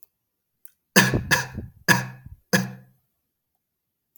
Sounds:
Cough